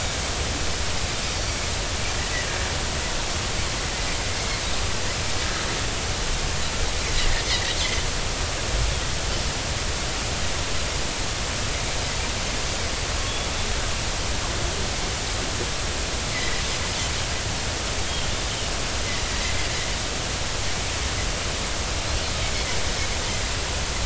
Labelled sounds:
1.4	1.6	Pacific white-sided dolphin, 4.4 to 4.6 kHz
7.5	7.7	Pacific white-sided dolphin, 1.8 to 2.3 kHz
13.2	13.5	Pacific white-sided dolphin, 3.2 to 3.5 kHz

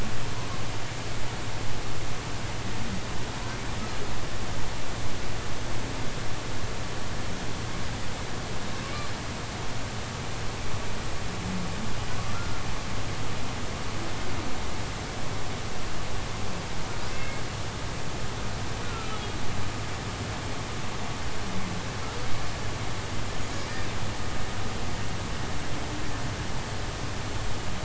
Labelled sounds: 12.1	12.6	humpback whale, 0.96 to 1.4 kHz
17.2	17.4	humpback whale, 2.1 to 2.2 kHz
18.8	19.2	humpback whale, 1.2 to 1.5 kHz

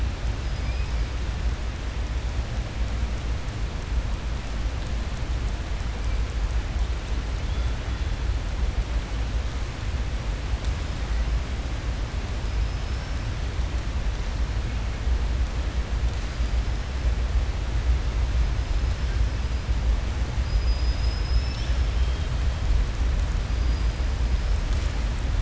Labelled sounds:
12.6	13.1	killer whale, southern resident, 5.1 to 5.5 kHz

